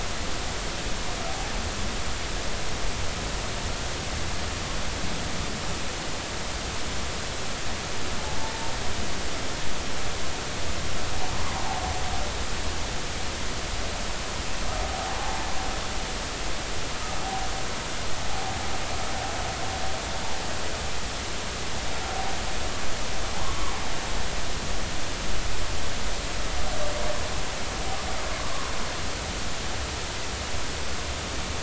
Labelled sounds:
8.2	8.5	humpback whale, 0.80 to 0.93 kHz
15.1	15.4	humpback whale, 0.80 to 0.93 kHz
23.4	23.7	humpback whale, 0.96 to 1.2 kHz
28.4	28.7	humpback whale, 0.99 to 1.2 kHz

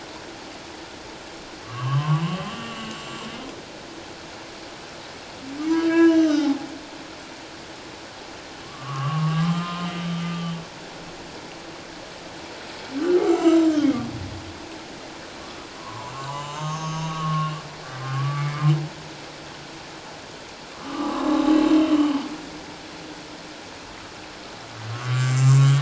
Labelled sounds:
1.6	3.0	humpback whale, 0.91 to 3.2 kHz
5.6	6.5	humpback whale, 0.94 to 6.2 kHz
8.6	10.1	humpback whale, 1.0 to 3.0 kHz
13.2	14.0	humpback whale, 1.2 to 7.5 kHz
15.8	17.6	humpback whale, 0.81 to 7.3 kHz
17.8	18.6	humpback whale, 1.1 to 2.3 kHz
20.8	21.5	humpback whale, 0.81 to 4.1 kHz
21.9	22.2	humpback whale, 2.9 to 3.2 kHz
24.9	25.8	humpback whale, 1.0 to 7.5 kHz

